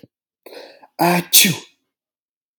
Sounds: Sneeze